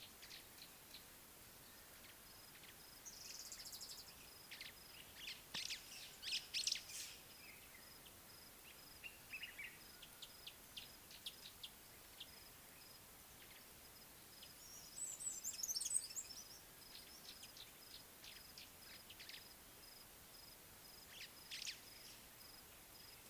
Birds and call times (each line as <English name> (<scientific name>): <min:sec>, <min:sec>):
Purple Grenadier (Granatina ianthinogaster): 0:03.7
White-browed Sparrow-Weaver (Plocepasser mahali): 0:06.4, 0:21.7
Mariqua Sunbird (Cinnyris mariquensis): 0:15.6
Gray-backed Camaroptera (Camaroptera brevicaudata): 0:18.0